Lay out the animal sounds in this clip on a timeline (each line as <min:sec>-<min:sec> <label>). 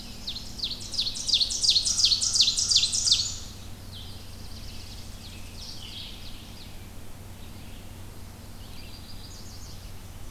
0:00.0-0:00.7 Winter Wren (Troglodytes hiemalis)
0:00.0-0:03.4 Ovenbird (Seiurus aurocapilla)
0:01.8-0:03.4 American Crow (Corvus brachyrhynchos)
0:02.2-0:03.4 Black-and-white Warbler (Mniotilta varia)
0:03.8-0:10.3 Red-eyed Vireo (Vireo olivaceus)
0:03.9-0:06.1 Tennessee Warbler (Leiothlypis peregrina)
0:04.8-0:06.8 Ovenbird (Seiurus aurocapilla)
0:08.5-0:09.8 Yellow Warbler (Setophaga petechia)